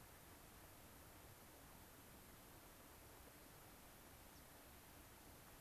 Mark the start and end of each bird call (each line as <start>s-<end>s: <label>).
4.3s-4.4s: American Pipit (Anthus rubescens)